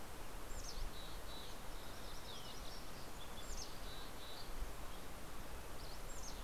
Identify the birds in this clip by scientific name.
Poecile gambeli, Geothlypis tolmiei, Oreortyx pictus, Empidonax oberholseri